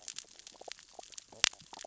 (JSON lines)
{"label": "biophony, stridulation", "recorder": "SoundTrap 600 or HydroMoth"}